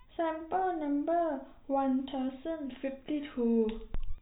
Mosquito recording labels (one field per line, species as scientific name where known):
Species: no mosquito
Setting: cup